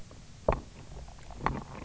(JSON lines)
{"label": "biophony, knock croak", "recorder": "SoundTrap 300"}